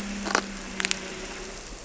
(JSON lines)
{"label": "anthrophony, boat engine", "recorder": "SoundTrap 300"}